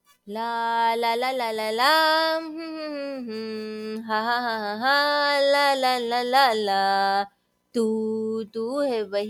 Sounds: Sigh